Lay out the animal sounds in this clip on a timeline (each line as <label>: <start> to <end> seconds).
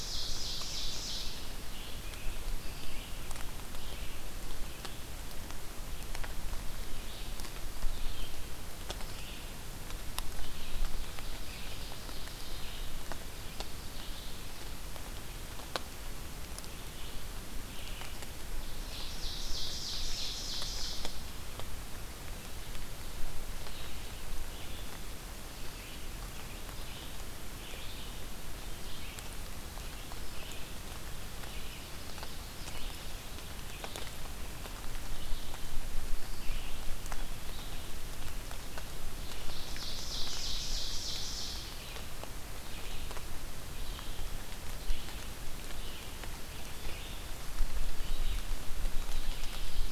Ovenbird (Seiurus aurocapilla): 0.0 to 1.4 seconds
Red-eyed Vireo (Vireo olivaceus): 0.0 to 37.8 seconds
Scarlet Tanager (Piranga olivacea): 1.6 to 3.4 seconds
Ovenbird (Seiurus aurocapilla): 10.3 to 12.9 seconds
Ovenbird (Seiurus aurocapilla): 18.4 to 21.5 seconds
Ovenbird (Seiurus aurocapilla): 31.4 to 33.4 seconds
Ovenbird (Seiurus aurocapilla): 39.1 to 41.9 seconds
Red-eyed Vireo (Vireo olivaceus): 39.1 to 49.9 seconds
Ovenbird (Seiurus aurocapilla): 49.2 to 49.9 seconds